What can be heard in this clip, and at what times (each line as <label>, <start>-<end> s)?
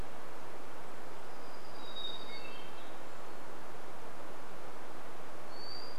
warbler song, 0-4 s
Hermit Thrush song, 2-6 s